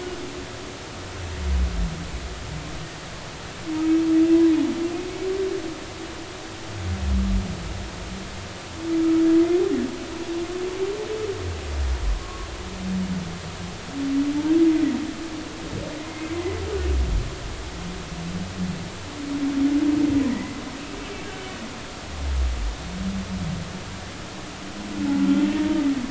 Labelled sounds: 12.2	12.5	humpback whale, 0.99 to 1.2 kHz
16.3	16.6	humpback whale, 2.0 to 2.1 kHz
20.3	20.6	humpback whale, 1.8 to 2.0 kHz

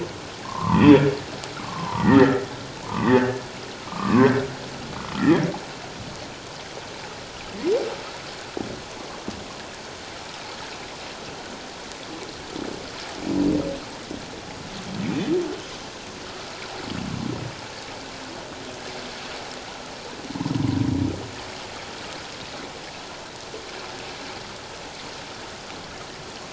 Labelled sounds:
0.5	1.0	humpback whale, 0.84 to 3.5 kHz
1.5	2.4	humpback whale, 0.88 to 2.0 kHz
2.8	4.3	humpback whale, 0.88 to 2.0 kHz
5.2	5.5	humpback whale, 1.6 to 2.0 kHz

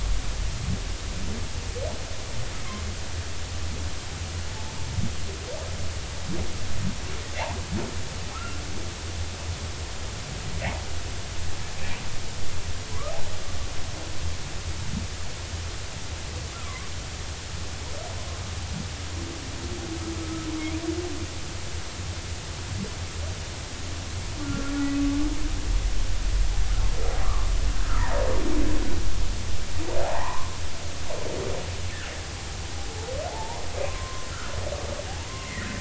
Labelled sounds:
8.3	8.6	humpback whale, 1.2 to 1.4 kHz
16.5	16.9	humpback whale, 0.99 to 1.4 kHz
20.2	20.5	humpback whale, 1.2 to 1.4 kHz
24.4	24.7	humpback whale, 1.3 to 1.5 kHz
27.2	28.3	humpback whale, 0.86 to 1.3 kHz
30.0	30.5	humpback whale, 0.80 to 1.2 kHz
33.3	34.3	humpback whale, 0.80 to 1.1 kHz
35.4	35.7	humpback whale, 1.5 to 2.2 kHz

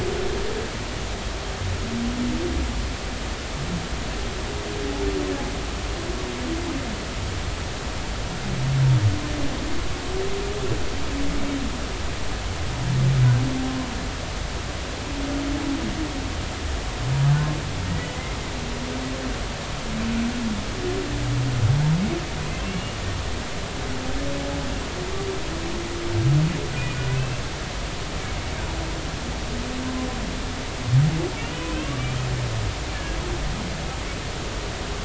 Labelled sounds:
17.9	18.4	humpback whale, 1.8 to 2.1 kHz
22.4	23.0	humpback whale, 2.4 to 2.9 kHz
31.8	32.0	humpback whale, 1.0 to 1.2 kHz
32.9	33.2	humpback whale, 1.6 to 1.8 kHz

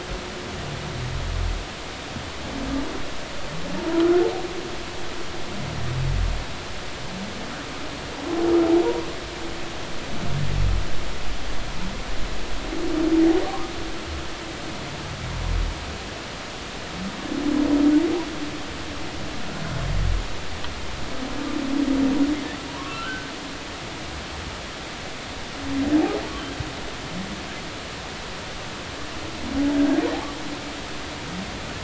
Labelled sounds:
13.4	13.7	humpback whale, 0.96 to 1.3 kHz
22.7	23.3	humpback whale, 0.90 to 1.6 kHz

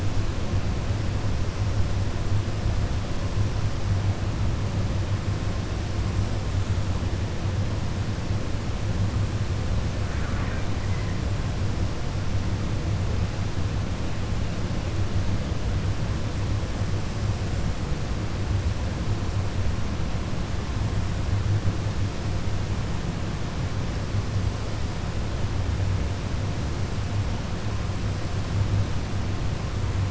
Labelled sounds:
10.0	10.7	killer whale, 0.95 to 2.5 kHz

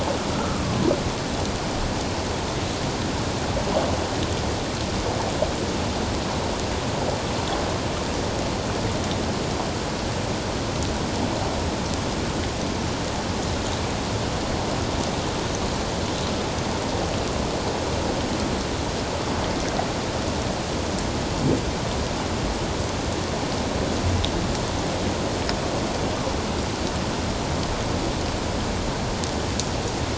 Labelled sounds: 0.3	0.9	humpback whale, 0.91 to 1.4 kHz

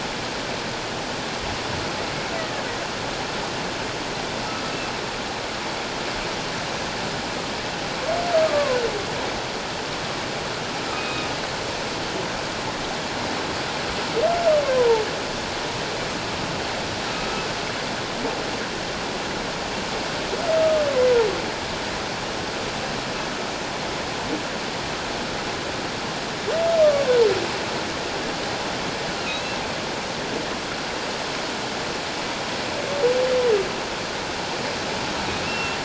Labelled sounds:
2.4	2.6	humpback whale, 1.6 to 2.0 kHz
8.4	8.8	humpback whale, 0.97 to 1.3 kHz
10.9	11.3	humpback whale, 2.4 to 2.6 kHz
14.7	15.0	humpback whale, 0.84 to 1.1 kHz
20.6	20.8	humpback whale, 1.2 to 1.3 kHz
29.3	29.6	humpback whale, 2.4 to 2.8 kHz
35.4	35.8	humpback whale, 2.6 to 2.8 kHz

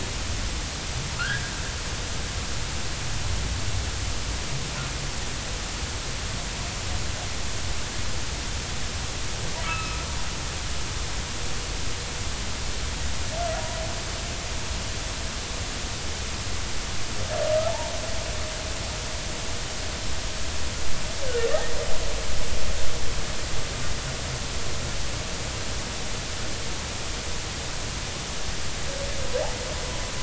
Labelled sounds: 1.2	1.4	humpback whale, 1.2 to 1.8 kHz
9.6	10.0	humpback whale, 1.1 to 2.7 kHz
17.6	17.9	humpback whale, 0.83 to 0.99 kHz
21.5	21.8	humpback whale, 1.7 to 2.0 kHz

